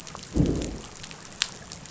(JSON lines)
{"label": "biophony, growl", "recorder": "SoundTrap 500"}